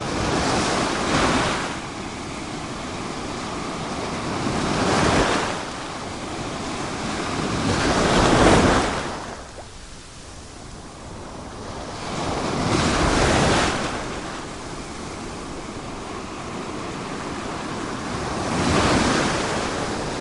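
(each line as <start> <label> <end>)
0.0 Gentle waves crashing on a beach with a calm, rhythmic sound. 20.2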